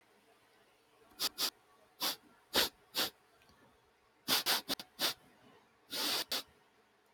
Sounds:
Sniff